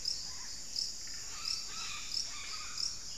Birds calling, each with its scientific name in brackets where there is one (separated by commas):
Red-bellied Macaw (Orthopsittaca manilatus)